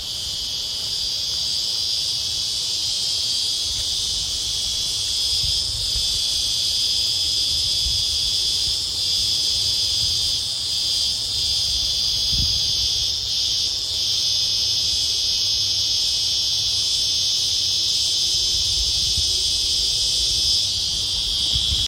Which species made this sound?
Psaltoda plaga